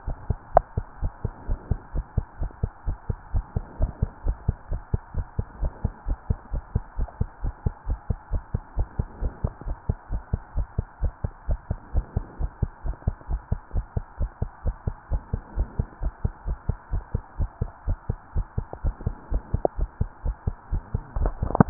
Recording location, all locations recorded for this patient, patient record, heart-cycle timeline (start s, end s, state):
pulmonary valve (PV)
aortic valve (AV)+pulmonary valve (PV)+tricuspid valve (TV)
#Age: Child
#Sex: Female
#Height: 132.0 cm
#Weight: 41.1 kg
#Pregnancy status: False
#Murmur: Absent
#Murmur locations: nan
#Most audible location: nan
#Systolic murmur timing: nan
#Systolic murmur shape: nan
#Systolic murmur grading: nan
#Systolic murmur pitch: nan
#Systolic murmur quality: nan
#Diastolic murmur timing: nan
#Diastolic murmur shape: nan
#Diastolic murmur grading: nan
#Diastolic murmur pitch: nan
#Diastolic murmur quality: nan
#Outcome: Normal
#Campaign: 2015 screening campaign
0.00	0.54	unannotated
0.54	0.66	S1
0.66	0.77	systole
0.77	0.86	S2
0.86	1.01	diastole
1.01	1.12	S1
1.12	1.24	systole
1.24	1.34	S2
1.34	1.48	diastole
1.48	1.60	S1
1.60	1.70	systole
1.70	1.80	S2
1.80	1.94	diastole
1.94	2.06	S1
2.06	2.16	systole
2.16	2.26	S2
2.26	2.40	diastole
2.40	2.50	S1
2.50	2.62	systole
2.62	2.72	S2
2.72	2.86	diastole
2.86	2.98	S1
2.98	3.08	systole
3.08	3.17	S2
3.17	3.32	diastole
3.32	3.46	S1
3.46	3.54	systole
3.54	3.66	S2
3.66	3.78	diastole
3.78	3.92	S1
3.92	4.01	systole
4.01	4.10	S2
4.10	4.24	diastole
4.24	4.38	S1
4.38	4.47	systole
4.47	4.56	S2
4.56	4.69	diastole
4.69	4.82	S1
4.82	4.92	systole
4.92	5.02	S2
5.02	5.14	diastole
5.14	5.26	S1
5.26	5.37	systole
5.37	5.46	S2
5.46	5.60	diastole
5.60	5.72	S1
5.72	5.82	systole
5.82	5.94	S2
5.94	6.06	diastole
6.06	6.18	S1
6.18	6.28	systole
6.28	6.38	S2
6.38	6.52	diastole
6.52	6.64	S1
6.64	6.74	systole
6.74	6.82	S2
6.82	6.97	diastole
6.97	7.08	S1
7.08	7.19	systole
7.19	7.28	S2
7.28	7.42	diastole
7.42	7.54	S1
7.54	7.63	systole
7.63	7.74	S2
7.74	7.86	diastole
7.86	8.00	S1
8.00	8.09	systole
8.09	8.18	S2
8.18	8.30	diastole
8.30	8.44	S1
8.44	8.53	systole
8.53	8.64	S2
8.64	8.76	diastole
8.76	8.88	S1
8.88	8.97	systole
8.97	9.08	S2
9.08	9.21	diastole
9.21	9.32	S1
9.32	9.42	systole
9.42	9.52	S2
9.52	9.65	diastole
9.65	9.78	S1
9.78	9.88	systole
9.88	9.98	S2
9.98	10.10	diastole
10.10	10.22	S1
10.22	10.32	systole
10.32	10.42	S2
10.42	10.54	diastole
10.54	10.68	S1
10.68	10.75	systole
10.75	10.88	S2
10.88	11.00	diastole
11.00	11.14	S1
11.14	11.22	systole
11.22	11.32	S2
11.32	11.48	diastole
11.48	11.60	S1
11.60	11.69	systole
11.69	11.80	S2
11.80	11.94	diastole
11.94	12.06	S1
12.06	12.15	systole
12.15	12.26	S2
12.26	12.39	diastole
12.39	12.52	S1
12.52	12.61	systole
12.61	12.72	S2
12.72	12.84	diastole
12.84	12.96	S1
12.96	13.06	systole
13.06	13.16	S2
13.16	13.27	diastole
13.27	13.42	S1
13.42	13.50	systole
13.50	13.60	S2
13.60	13.72	diastole
13.72	13.84	S1
13.84	13.93	systole
13.93	14.04	S2
14.04	14.17	diastole
14.17	14.30	S1
14.30	14.40	systole
14.40	14.50	S2
14.50	14.63	diastole
14.63	14.76	S1
14.76	14.85	systole
14.85	14.96	S2
14.96	15.09	diastole
15.09	15.22	S1
15.22	15.31	systole
15.31	15.42	S2
15.42	15.56	diastole
15.56	15.68	S1
15.68	15.77	systole
15.77	15.88	S2
15.88	16.00	diastole
16.00	16.14	S1
16.14	16.22	systole
16.22	16.34	S2
16.34	16.45	diastole
16.45	16.58	S1
16.58	16.66	systole
16.66	16.78	S2
16.78	16.91	diastole
16.91	17.04	S1
17.04	17.13	systole
17.13	17.23	S2
17.23	21.70	unannotated